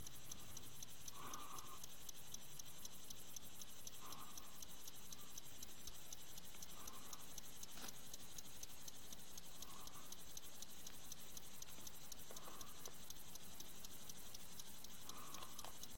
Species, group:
Chorthippus apricarius
Orthoptera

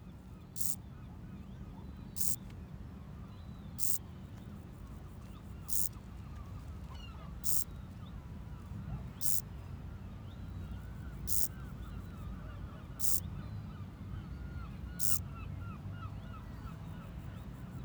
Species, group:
Chorthippus brunneus
Orthoptera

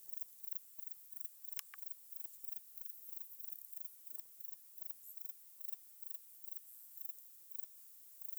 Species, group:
Platycleis albopunctata
Orthoptera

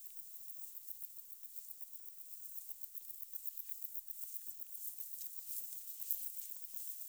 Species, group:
Decticus verrucivorus
Orthoptera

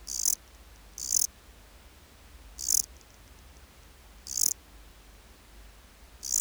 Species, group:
Melanogryllus desertus
Orthoptera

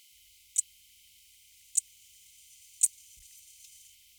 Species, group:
Eupholidoptera schmidti
Orthoptera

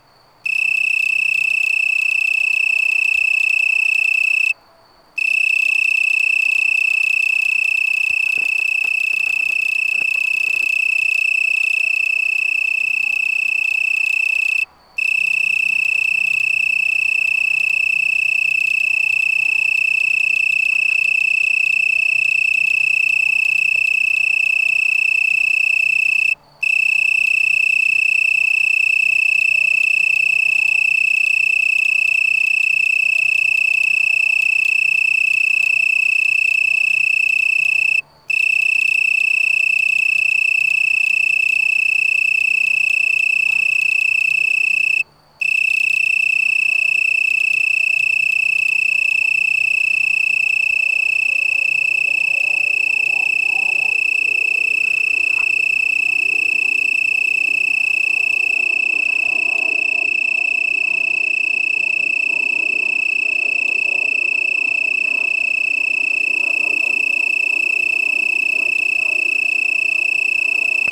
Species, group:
Oecanthus dulcisonans
Orthoptera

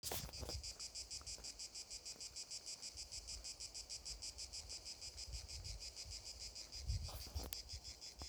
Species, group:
Cicada orni
Cicadidae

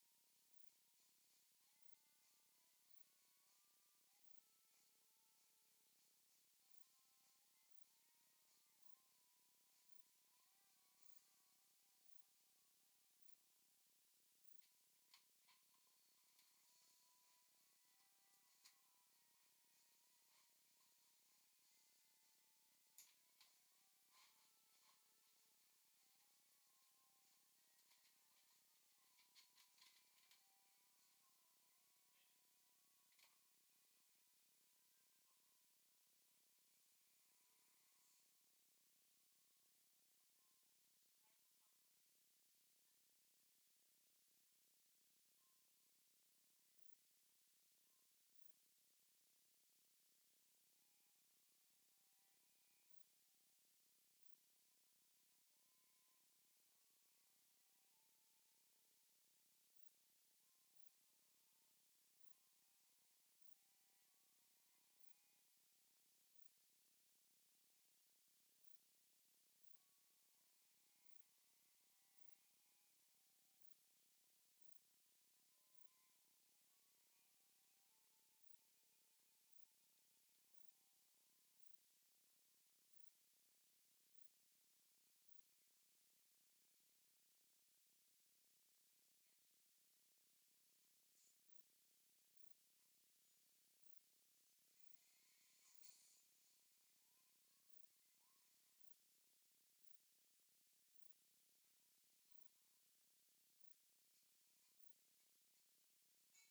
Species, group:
Pterolepis spoliata
Orthoptera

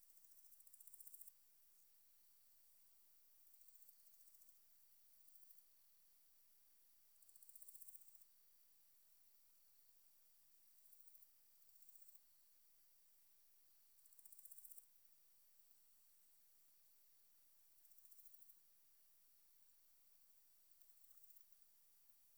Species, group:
Barbitistes serricauda
Orthoptera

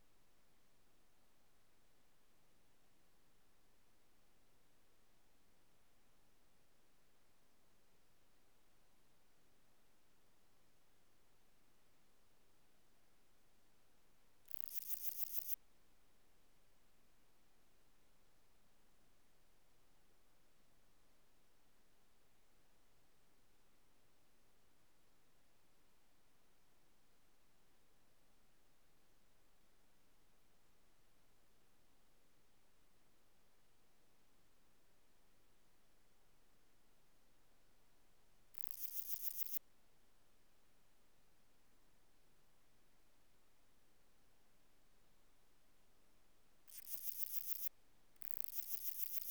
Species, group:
Parnassiana gionica
Orthoptera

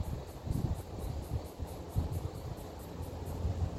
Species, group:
Yoyetta celis
Cicadidae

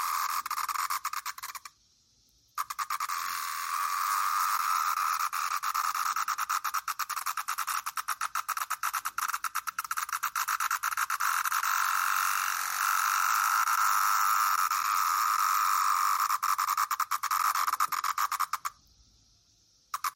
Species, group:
Magicicada septendecim
Cicadidae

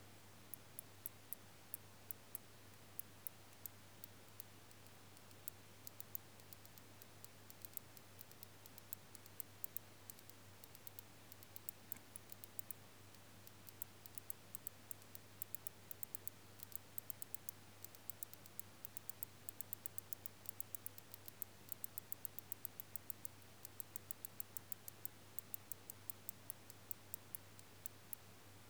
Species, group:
Canariola emarginata
Orthoptera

